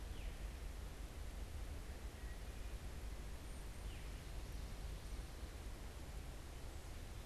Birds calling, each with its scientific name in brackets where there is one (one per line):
Veery (Catharus fuscescens)